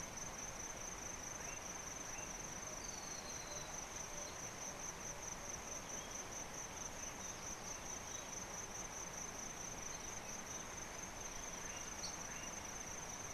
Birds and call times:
Spectacled Weaver (Ploceus ocularis): 0:03.1

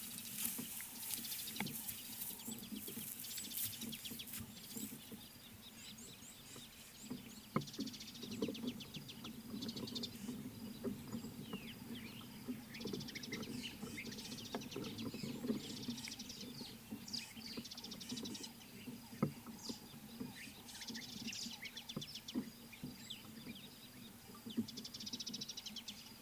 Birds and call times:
Mariqua Sunbird (Cinnyris mariquensis): 0:07.9, 0:13.1, 0:18.0, 0:25.2
Scarlet-chested Sunbird (Chalcomitra senegalensis): 0:23.1

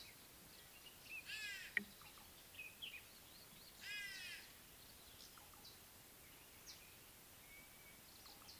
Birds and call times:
White-bellied Go-away-bird (Corythaixoides leucogaster): 0:01.4, 0:04.0
Common Bulbul (Pycnonotus barbatus): 0:02.8
Red-faced Crombec (Sylvietta whytii): 0:03.4
Scarlet-chested Sunbird (Chalcomitra senegalensis): 0:06.7

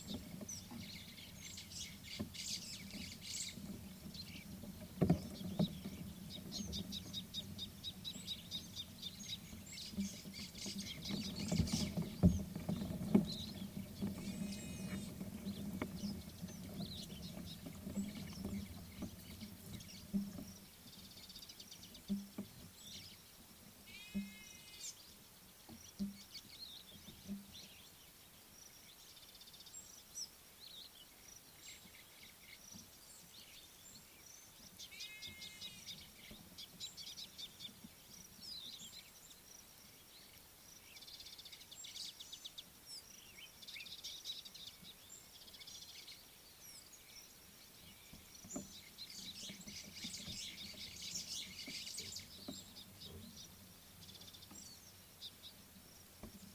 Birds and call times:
White-browed Sparrow-Weaver (Plocepasser mahali): 0:02.5, 0:10.8, 0:51.4
Scarlet-chested Sunbird (Chalcomitra senegalensis): 0:07.4, 0:37.2
Mariqua Sunbird (Cinnyris mariquensis): 0:21.3, 0:29.3, 0:41.4
Superb Starling (Lamprotornis superbus): 0:30.7
Slate-colored Boubou (Laniarius funebris): 0:43.8

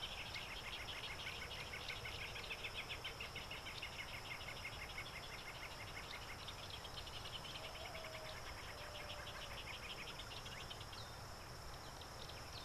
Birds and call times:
Northern Brownbul (Phyllastrephus strepitans): 0:01.5, 0:04.5

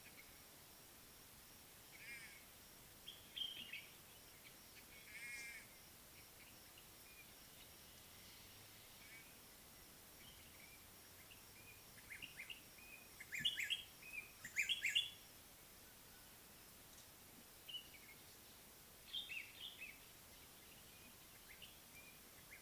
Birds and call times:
White-bellied Go-away-bird (Corythaixoides leucogaster): 0:02.1, 0:05.3
Common Bulbul (Pycnonotus barbatus): 0:03.4
White-browed Robin-Chat (Cossypha heuglini): 0:13.6

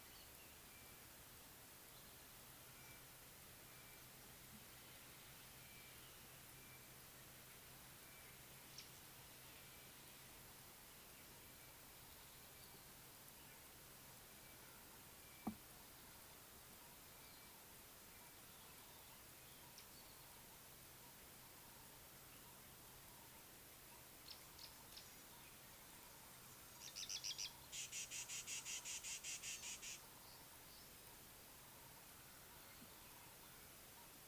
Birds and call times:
Sulphur-breasted Bushshrike (Telophorus sulfureopectus): 0:02.8
Rattling Cisticola (Cisticola chiniana): 0:29.1

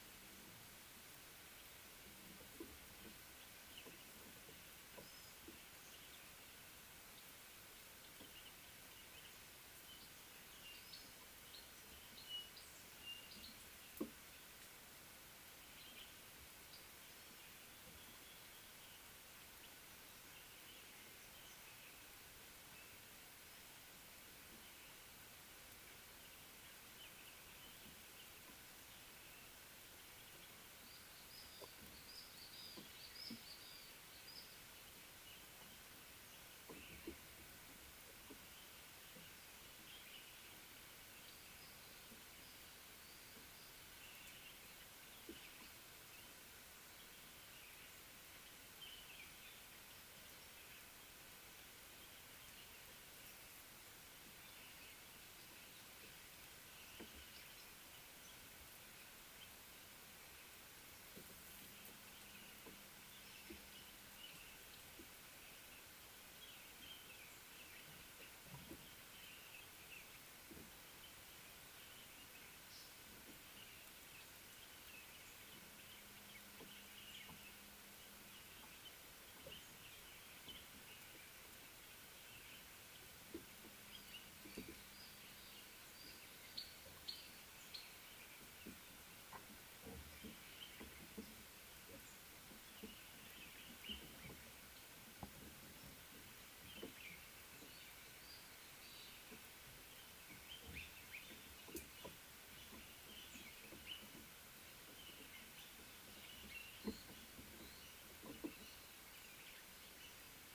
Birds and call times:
Chinspot Batis (Batis molitor): 0:12.4
Little Bee-eater (Merops pusillus): 0:32.7

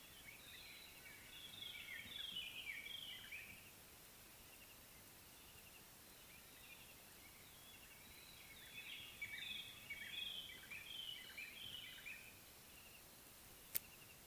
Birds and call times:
White-browed Robin-Chat (Cossypha heuglini): 0:01.9, 0:10.3

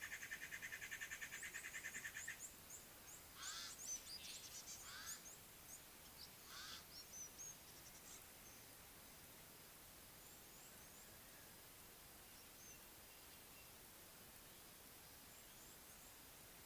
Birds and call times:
Pied Crow (Corvus albus): 0:03.5, 0:06.6
African Gray Flycatcher (Bradornis microrhynchus): 0:04.6

